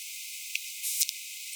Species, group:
Poecilimon elegans
Orthoptera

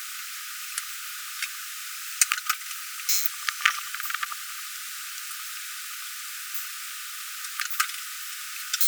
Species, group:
Poecilimon thessalicus
Orthoptera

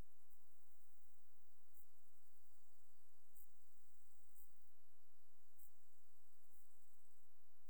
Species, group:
Chorthippus brunneus
Orthoptera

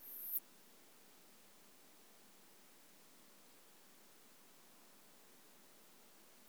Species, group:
Poecilimon pseudornatus
Orthoptera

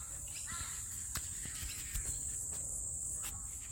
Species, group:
Tamasa tristigma
Cicadidae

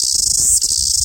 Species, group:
Amphipsalta zelandica
Cicadidae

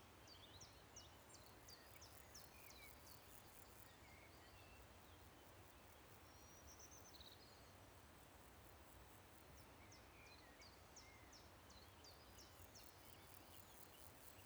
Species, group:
Pseudochorthippus parallelus
Orthoptera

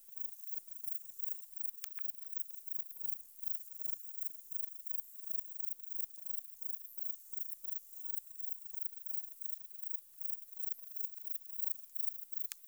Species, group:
Platycleis albopunctata
Orthoptera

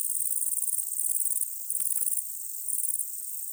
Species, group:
Tettigonia viridissima
Orthoptera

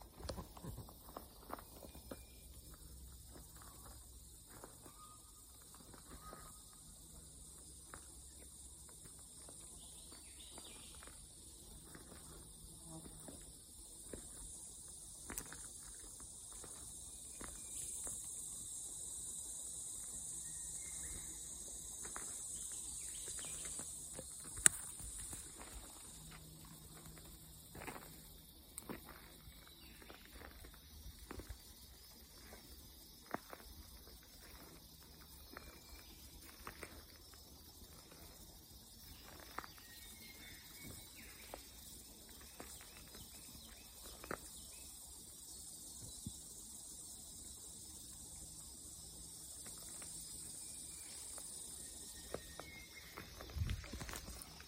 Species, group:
Thopha saccata
Cicadidae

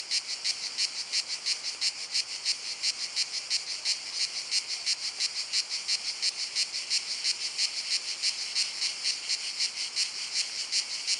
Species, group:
Cicada orni
Cicadidae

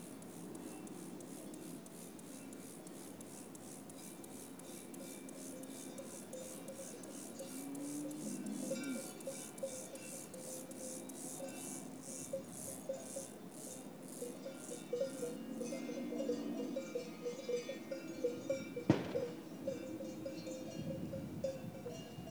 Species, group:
Chorthippus mollis
Orthoptera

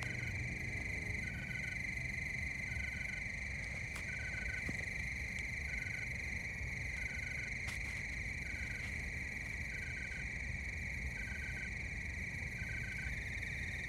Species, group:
Oecanthus fultoni
Orthoptera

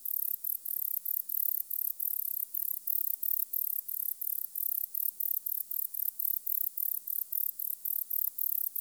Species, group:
Decticus verrucivorus
Orthoptera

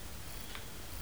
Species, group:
Modestana ebneri
Orthoptera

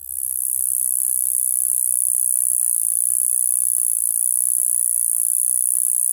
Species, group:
Gampsocleis glabra
Orthoptera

